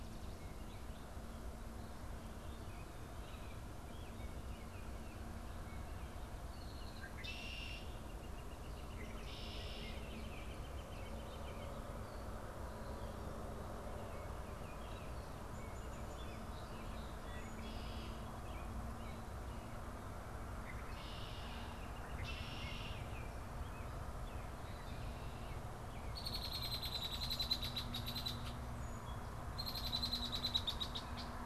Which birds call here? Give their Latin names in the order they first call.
Agelaius phoeniceus, Colaptes auratus, Turdus migratorius